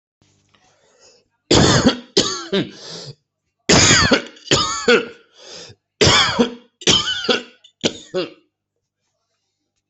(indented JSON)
{
  "expert_labels": [
    {
      "quality": "good",
      "cough_type": "wet",
      "dyspnea": false,
      "wheezing": false,
      "stridor": false,
      "choking": false,
      "congestion": false,
      "nothing": true,
      "diagnosis": "lower respiratory tract infection",
      "severity": "severe"
    }
  ],
  "age": 45,
  "gender": "male",
  "respiratory_condition": true,
  "fever_muscle_pain": false,
  "status": "healthy"
}